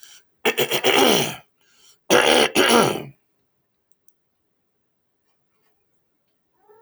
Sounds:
Throat clearing